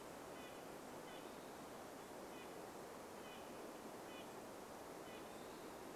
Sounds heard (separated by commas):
Red-breasted Nuthatch song, Western Wood-Pewee song